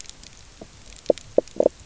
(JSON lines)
{"label": "biophony, knock croak", "recorder": "SoundTrap 300"}